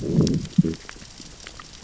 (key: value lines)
label: biophony, growl
recorder: SoundTrap 600 or HydroMoth